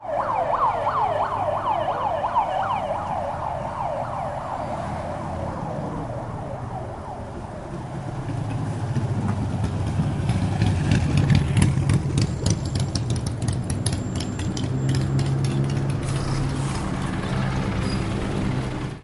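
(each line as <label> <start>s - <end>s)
An ambulance siren fades as it moves away. 0.0s - 9.0s
A motorbike engine is running. 8.0s - 17.3s
Helicopter blades whir. 16.2s - 19.0s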